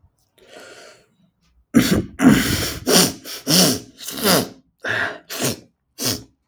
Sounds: Sneeze